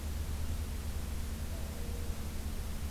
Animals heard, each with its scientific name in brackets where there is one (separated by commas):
Mourning Dove (Zenaida macroura)